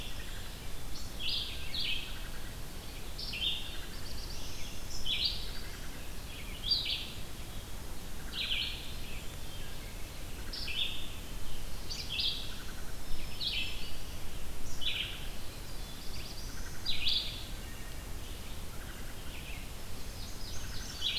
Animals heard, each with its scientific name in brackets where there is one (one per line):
Red-eyed Vireo (Vireo olivaceus)
Black-throated Blue Warbler (Setophaga caerulescens)
Black-throated Green Warbler (Setophaga virens)
Wood Thrush (Hylocichla mustelina)
Indigo Bunting (Passerina cyanea)